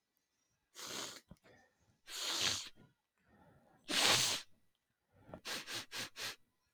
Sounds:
Sniff